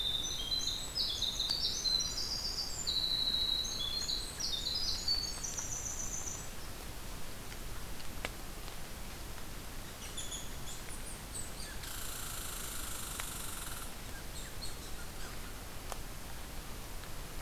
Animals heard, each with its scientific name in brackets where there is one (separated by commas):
Winter Wren (Troglodytes hiemalis), Red Squirrel (Tamiasciurus hudsonicus)